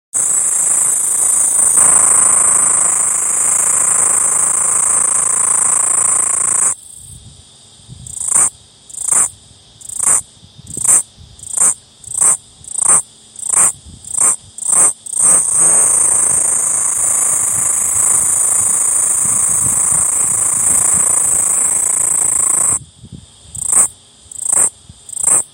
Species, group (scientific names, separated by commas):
Aleeta curvicosta, Cicadidae